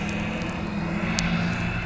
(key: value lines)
label: biophony
recorder: SoundTrap 300